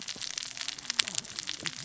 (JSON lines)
{"label": "biophony, cascading saw", "recorder": "SoundTrap 600 or HydroMoth"}